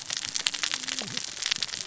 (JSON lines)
{"label": "biophony, cascading saw", "recorder": "SoundTrap 600 or HydroMoth"}